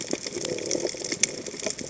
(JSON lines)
{"label": "biophony", "recorder": "HydroMoth"}